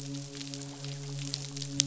{"label": "biophony, midshipman", "recorder": "SoundTrap 500"}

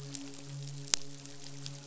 {"label": "biophony, midshipman", "recorder": "SoundTrap 500"}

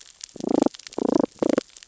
{"label": "biophony, damselfish", "recorder": "SoundTrap 600 or HydroMoth"}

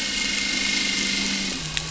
{"label": "anthrophony, boat engine", "recorder": "SoundTrap 500"}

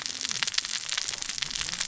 {"label": "biophony, cascading saw", "recorder": "SoundTrap 600 or HydroMoth"}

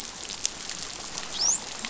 {"label": "biophony, dolphin", "recorder": "SoundTrap 500"}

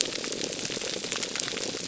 {"label": "biophony", "recorder": "SoundTrap 300"}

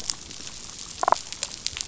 {"label": "biophony, damselfish", "recorder": "SoundTrap 500"}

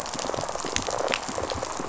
{"label": "biophony, rattle response", "recorder": "SoundTrap 500"}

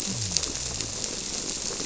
{"label": "biophony", "recorder": "SoundTrap 300"}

